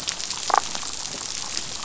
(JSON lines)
{"label": "biophony, damselfish", "recorder": "SoundTrap 500"}